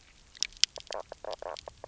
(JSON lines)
{"label": "biophony, knock croak", "recorder": "SoundTrap 300"}